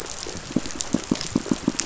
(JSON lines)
{"label": "biophony, pulse", "recorder": "SoundTrap 500"}